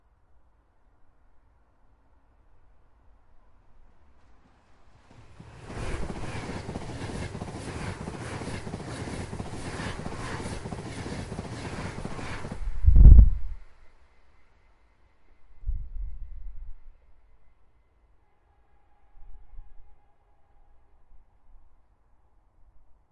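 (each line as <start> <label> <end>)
0.0 Very quiet muffled whining white noise in the background. 23.1
0.2 Wind blowing steadily outdoors. 5.6
5.4 Train wheels click metallically and repeatedly as they roll over rails. 12.7
5.7 Wind whistles repeatedly as it hits passing train carts. 12.8
12.8 Air rushing as it is pulled into an enclosed space. 13.7
13.8 Metallic echo rings repeatedly and very quietly in the background. 15.9
16.8 Distant muffled metallic screeching and whining sounds in the background. 20.3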